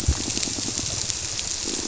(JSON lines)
{"label": "biophony, squirrelfish (Holocentrus)", "recorder": "SoundTrap 300"}